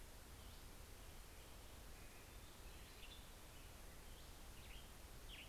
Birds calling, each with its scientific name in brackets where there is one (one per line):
Western Tanager (Piranga ludoviciana)